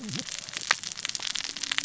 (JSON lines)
{"label": "biophony, cascading saw", "recorder": "SoundTrap 600 or HydroMoth"}